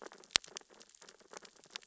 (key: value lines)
label: biophony, sea urchins (Echinidae)
recorder: SoundTrap 600 or HydroMoth